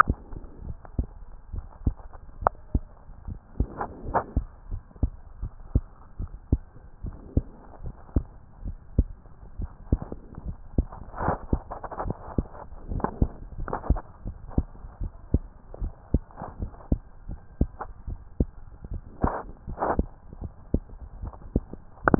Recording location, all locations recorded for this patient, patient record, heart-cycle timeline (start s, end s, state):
tricuspid valve (TV)
aortic valve (AV)+pulmonary valve (PV)+tricuspid valve (TV)+mitral valve (MV)
#Age: Child
#Sex: Female
#Height: 123.0 cm
#Weight: 33.1 kg
#Pregnancy status: False
#Murmur: Absent
#Murmur locations: nan
#Most audible location: nan
#Systolic murmur timing: nan
#Systolic murmur shape: nan
#Systolic murmur grading: nan
#Systolic murmur pitch: nan
#Systolic murmur quality: nan
#Diastolic murmur timing: nan
#Diastolic murmur shape: nan
#Diastolic murmur grading: nan
#Diastolic murmur pitch: nan
#Diastolic murmur quality: nan
#Outcome: Normal
#Campaign: 2015 screening campaign
0.00	4.44	unannotated
4.44	4.70	diastole
4.70	4.82	S1
4.82	4.98	systole
4.98	5.12	S2
5.12	5.42	diastole
5.42	5.52	S1
5.52	5.70	systole
5.70	5.84	S2
5.84	6.20	diastole
6.20	6.32	S1
6.32	6.52	systole
6.52	6.66	S2
6.66	7.04	diastole
7.04	7.16	S1
7.16	7.32	systole
7.32	7.46	S2
7.46	7.82	diastole
7.82	7.94	S1
7.94	8.12	systole
8.12	8.28	S2
8.28	8.64	diastole
8.64	8.78	S1
8.78	8.98	systole
8.98	9.14	S2
9.14	9.58	diastole
9.58	9.70	S1
9.70	9.88	systole
9.88	10.02	S2
10.02	10.44	diastole
10.44	10.56	S1
10.56	10.74	systole
10.74	10.88	S2
10.88	11.22	diastole
11.22	11.38	S1
11.38	11.52	systole
11.52	11.62	S2
11.62	12.02	diastole
12.02	12.16	S1
12.16	12.34	systole
12.34	12.48	S2
12.48	12.88	diastole
12.88	13.04	S1
13.04	13.16	systole
13.16	13.30	S2
13.30	13.57	diastole
13.57	13.72	S1
13.72	13.86	systole
13.86	13.98	S2
13.98	14.28	diastole
14.28	14.36	S1
14.36	14.54	systole
14.54	14.68	S2
14.68	15.02	diastole
15.02	15.12	S1
15.12	15.30	systole
15.30	15.46	S2
15.46	15.80	diastole
15.80	15.92	S1
15.92	16.10	systole
16.10	16.22	S2
16.22	16.60	diastole
16.60	16.72	S1
16.72	16.88	systole
16.88	17.00	S2
17.00	17.30	diastole
17.30	17.40	S1
17.40	17.58	systole
17.58	17.72	S2
17.72	18.08	diastole
18.08	18.20	S1
18.20	18.38	systole
18.38	18.52	S2
18.52	18.92	diastole
18.92	19.02	S1
19.02	19.20	systole
19.20	19.34	S2
19.34	19.68	diastole
19.68	19.78	S1
19.78	19.96	systole
19.96	20.10	S2
20.10	20.40	diastole
20.40	20.52	S1
20.52	20.70	systole
20.70	20.82	S2
20.82	21.20	diastole
21.20	21.34	S1
21.34	21.54	systole
21.54	21.66	S2
21.66	22.04	diastole
22.04	22.19	unannotated